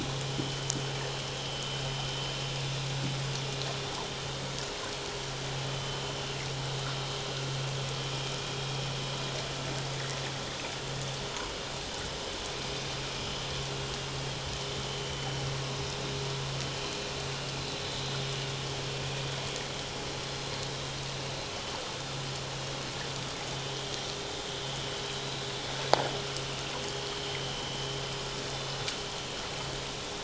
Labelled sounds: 5.7	6.0	vessel noise, 3.0 to 3.1 kHz

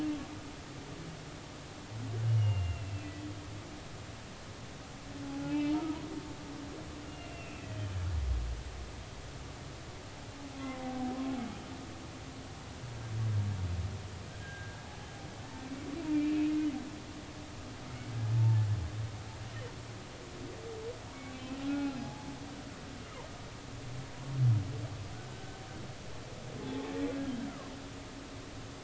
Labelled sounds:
2.3	3.1	humpback whale, 2.6 to 3.0 kHz
5.2	5.8	humpback whale, 0.80 to 3.0 kHz
7.1	8.1	humpback whale, 2.6 to 3.2 kHz
10.6	11.2	humpback whale, 0.80 to 1.1 kHz
14.4	14.8	humpback whale, 1.5 to 1.7 kHz
15.4	16.4	humpback whale, 1.7 to 2.9 kHz
17.8	18.7	humpback whale, 0.80 to 1.5 kHz
21.3	22.3	humpback whale, 0.80 to 2.7 kHz
25.3	25.6	humpback whale, 1.5 to 1.6 kHz
26.6	26.9	humpback whale, 0.80 to 0.90 kHz

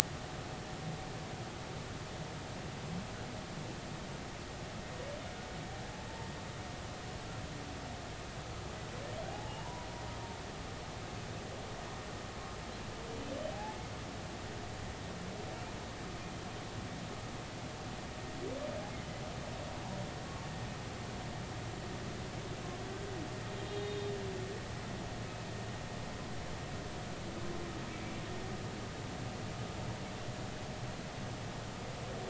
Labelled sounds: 9.3	9.9	humpback whale, 0.80 to 1.0 kHz
13.5	13.8	humpback whale, 0.80 to 0.93 kHz
23.7	24.1	humpback whale, 3.6 to 3.7 kHz

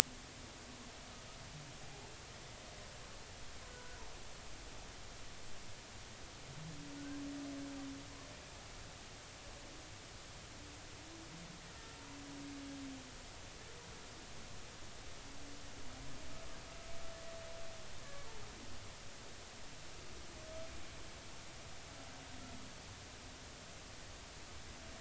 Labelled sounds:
3.7	4.0	humpback whale, 1.4 to 1.5 kHz

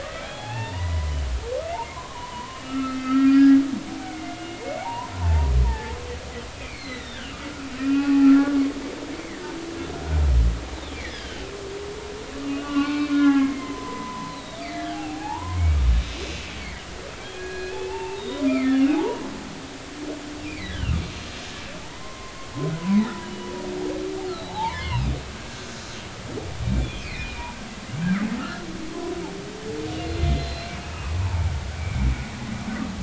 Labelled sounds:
0.2	1.1	humpback whale, 0.80 to 3.4 kHz
1.9	5.9	humpback whale, 0.80 to 2.9 kHz
6.6	7.4	humpback whale, 1.8 to 4.5 kHz
7.8	8.6	humpback whale, 0.80 to 2.7 kHz
9.2	9.5	humpback whale, 1.7 to 2.2 kHz
10.9	11.5	humpback whale, 1.5 to 3.5 kHz
12.4	15.6	humpback whale, 0.80 to 3.9 kHz
16.3	16.5	humpback whale, 2.6 to 2.9 kHz
17.3	19.3	humpback whale, 0.80 to 4.2 kHz
20.4	22.3	humpback whale, 0.83 to 2.8 kHz
22.8	23.5	humpback whale, 0.83 to 3.0 kHz
24.3	25.1	humpback whale, 0.80 to 4.4 kHz
26.6	27.5	humpback whale, 1.9 to 3.7 kHz
28.4	28.6	humpback whale, 1.2 to 1.9 kHz
30.1	32.1	humpback whale, 0.83 to 4.3 kHz

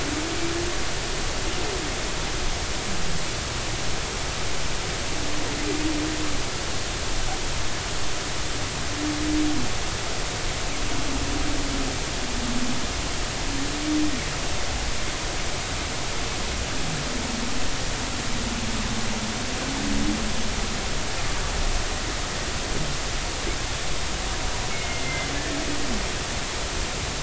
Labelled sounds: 24.7	25.3	humpback whale, 1.9 to 2.2 kHz

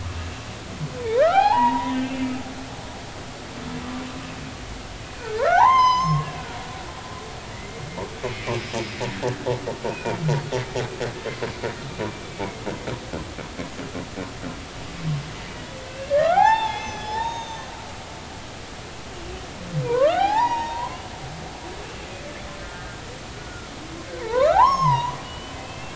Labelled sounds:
1.0	2.1	humpback whale, 0.80 to 3.4 kHz
5.2	6.5	humpback whale, 0.80 to 6.4 kHz
7.5	8.6	humpback whale, 1.9 to 2.6 kHz
9.9	10.2	humpback whale, 2.3 to 2.6 kHz
15.9	17.7	humpback whale, 0.80 to 6.5 kHz
19.8	21.1	humpback whale, 0.80 to 5.9 kHz
22.6	23.7	humpback whale, 1.3 to 1.6 kHz
24.2	25.9	humpback whale, 0.80 to 6.7 kHz

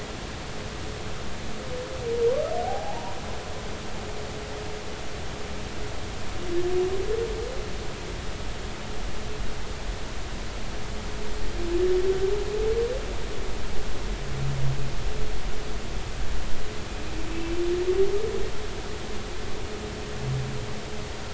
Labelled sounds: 2.6	3.2	humpback whale, 0.80 to 1.0 kHz

